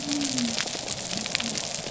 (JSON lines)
{"label": "biophony", "recorder": "SoundTrap 300"}